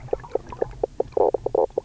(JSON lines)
{"label": "biophony, knock croak", "recorder": "SoundTrap 300"}